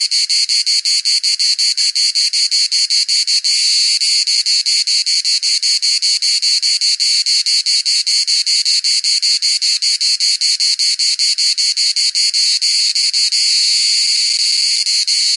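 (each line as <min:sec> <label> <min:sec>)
0:00.0 A grasshopper is chirping with a buzzing sound. 0:15.4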